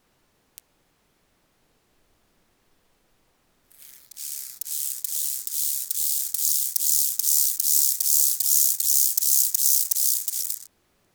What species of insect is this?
Chorthippus mollis